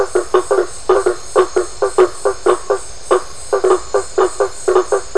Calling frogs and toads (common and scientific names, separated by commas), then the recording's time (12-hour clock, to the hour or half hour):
blacksmith tree frog (Boana faber)
midnight